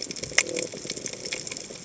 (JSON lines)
{"label": "biophony", "recorder": "HydroMoth"}